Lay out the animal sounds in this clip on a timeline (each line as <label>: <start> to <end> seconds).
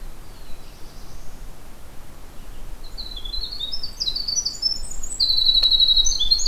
Black-throated Blue Warbler (Setophaga caerulescens): 0.1 to 1.5 seconds
Winter Wren (Troglodytes hiemalis): 2.7 to 6.5 seconds
Dark-eyed Junco (Junco hyemalis): 5.3 to 6.5 seconds